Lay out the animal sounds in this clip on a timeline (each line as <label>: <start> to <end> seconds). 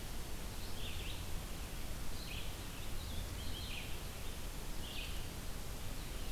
Red-eyed Vireo (Vireo olivaceus): 0.5 to 6.3 seconds
Blue-headed Vireo (Vireo solitarius): 2.8 to 6.3 seconds